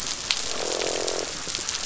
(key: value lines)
label: biophony, croak
recorder: SoundTrap 500